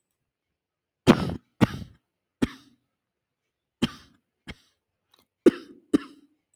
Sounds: Cough